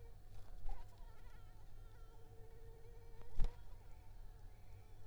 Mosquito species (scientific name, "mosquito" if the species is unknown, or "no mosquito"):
Anopheles arabiensis